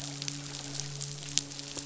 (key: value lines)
label: biophony, midshipman
recorder: SoundTrap 500